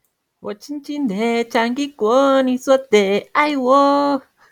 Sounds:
Sigh